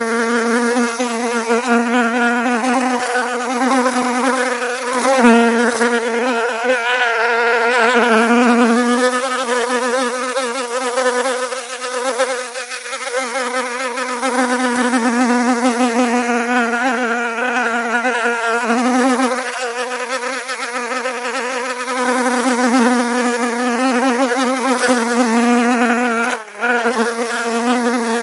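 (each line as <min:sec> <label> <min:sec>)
0:00.0 An insect buzzes with an even volume in an unpredictable pattern. 0:28.2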